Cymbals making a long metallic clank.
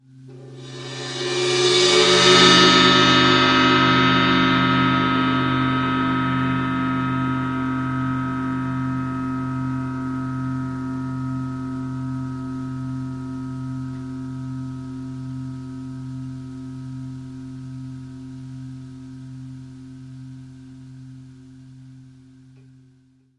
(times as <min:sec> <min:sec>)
0:01.1 0:05.0